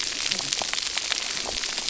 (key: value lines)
label: biophony, cascading saw
recorder: SoundTrap 300